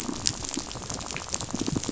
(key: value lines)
label: biophony, rattle
recorder: SoundTrap 500